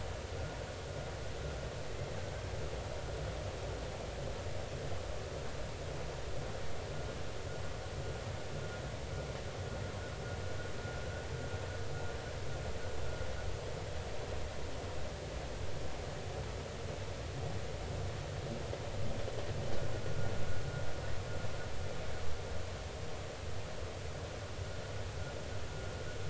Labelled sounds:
20.0	20.3	vessel noise, 1.2 to 1.5 kHz

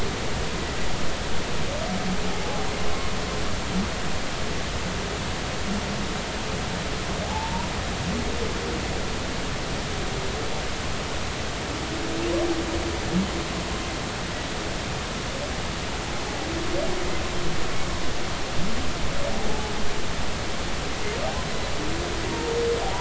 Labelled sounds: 2.4	2.7	humpback whale, 0.80 to 0.86 kHz
7.2	7.7	humpback whale, 0.80 to 1.0 kHz
22.3	22.5	humpback whale, 0.90 to 0.96 kHz

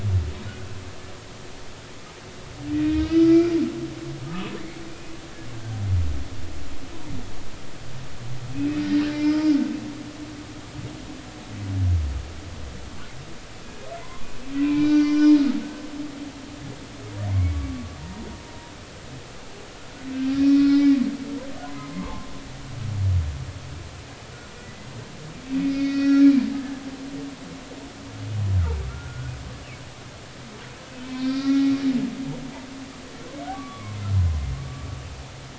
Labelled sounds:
2.7	3.5	humpback whale, 1.2 to 3.1 kHz
4.3	4.5	humpback whale, 1.2 to 1.3 kHz
8.5	9.4	humpback whale, 2.0 to 2.6 kHz
13.6	15.4	humpback whale, 0.93 to 5.8 kHz
17.3	17.9	humpback whale, 1.1 to 2.3 kHz
20.4	21.0	humpback whale, 1.3 to 5.2 kHz
21.6	22.3	humpback whale, 0.80 to 1.2 kHz
24.6	26.3	humpback whale, 1.3 to 5.0 kHz
29.9	31.7	humpback whale, 1.2 to 4.9 kHz
33.5	34.0	humpback whale, 0.99 to 1.2 kHz

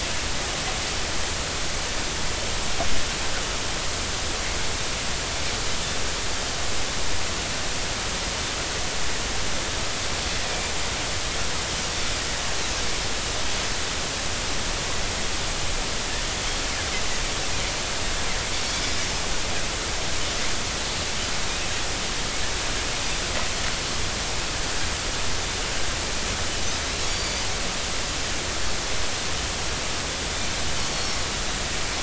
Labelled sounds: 10.4	10.7	Pacific white-sided dolphin, 2.3 to 2.5 kHz
27.1	27.5	Pacific white-sided dolphin, 4.5 to 4.8 kHz

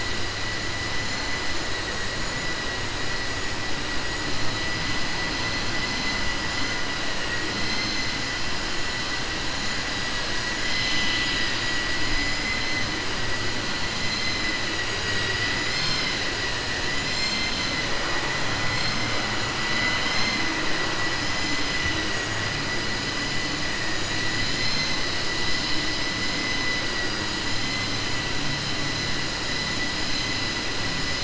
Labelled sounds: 12.3	12.8	vessel noise, 1.2 to 2.3 kHz
19.6	20.5	vessel noise, 0.77 to 7.0 kHz

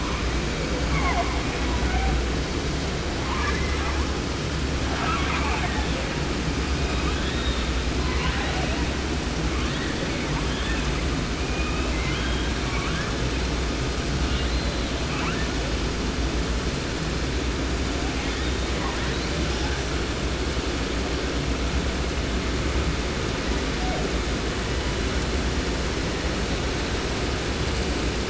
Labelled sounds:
0.8	2.3	killer whale, 0.44 to 2.7 kHz
3.2	4.2	killer whale, 0.30 to 6.1 kHz
4.8	9.0	killer whale, 0.30 to 4.4 kHz
9.4	12.6	killer whale, 0.30 to 5.2 kHz
12.6	13.7	killer whale, southern resident, J pod, call S02i, 0.66 to 3.9 kHz
14.1	15.6	killer whale, 0.30 to 4.5 kHz
18.1	20.2	killer whale, 0.30 to 6.4 kHz
23.4	24.1	killer whale, 0.58 to 5.3 kHz
24.6	25.3	killer whale, 0.66 to 3.6 kHz

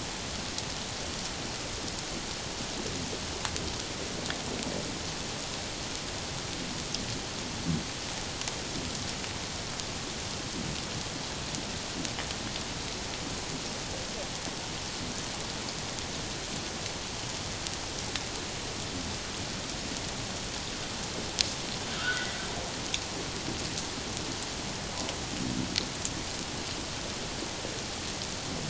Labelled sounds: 22.0	22.4	humpback whale, 1.2 to 2.1 kHz

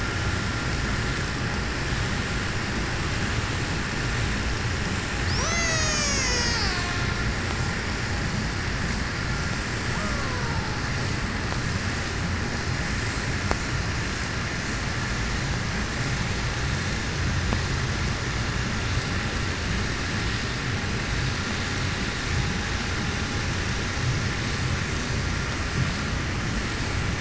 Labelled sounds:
5.0	7.5	killer whale, Bigg's (transient), call T03, 0.22 to 8.0 kHz
9.5	11.3	killer whale, Bigg's (transient), 0.26 to 8.0 kHz

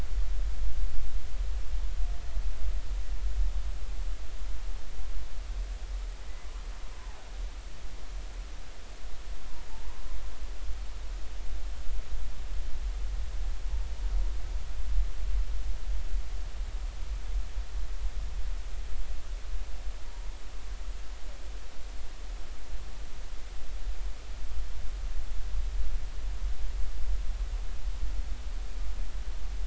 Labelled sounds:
6.9	7.3	humpback whale, 0.80 to 1.1 kHz
9.7	10.0	humpback whale, 0.83 to 1.2 kHz

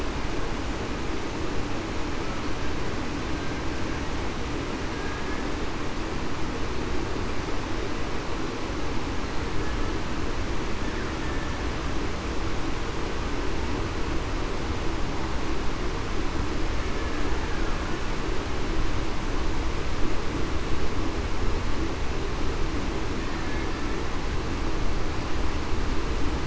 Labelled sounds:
4.9	5.4	killer whale, Bigg's (transient), 1.6 to 1.7 kHz

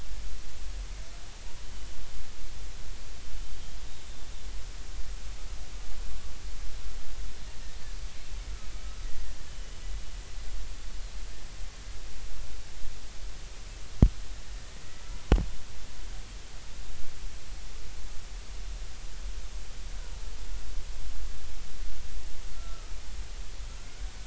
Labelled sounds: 9.5	9.8	killer whale, Bigg's (transient), 2.9 to 3.1 kHz
20.0	20.3	killer whale, Bigg's (transient), 0.86 to 1.0 kHz
22.5	22.9	killer whale, Bigg's (transient), 1.2 to 1.4 kHz

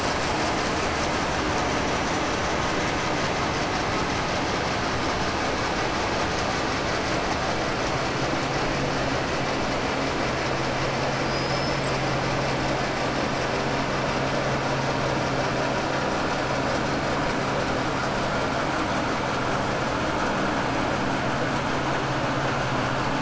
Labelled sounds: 11.1	11.8	killer whale, 4.8 to 5.8 kHz

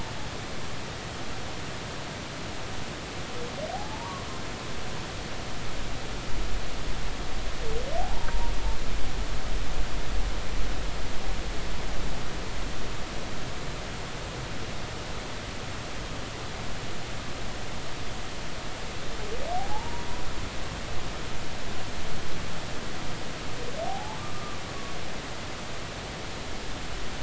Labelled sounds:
3.7	4.3	humpback whale, 0.80 to 1.2 kHz
8.0	8.3	humpback whale, 0.80 to 0.99 kHz
19.5	20.1	humpback whale, 0.80 to 1.0 kHz
23.8	24.6	humpback whale, 0.80 to 1.2 kHz

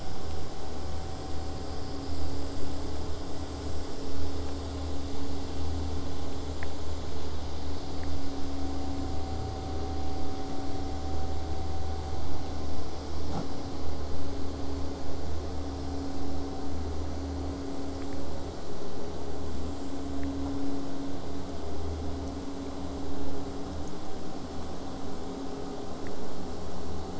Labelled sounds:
10.0	15.0	vessel noise, 0 to 8.0 kHz

